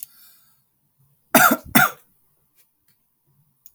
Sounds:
Cough